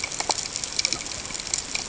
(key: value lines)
label: ambient
recorder: HydroMoth